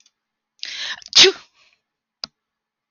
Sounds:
Sneeze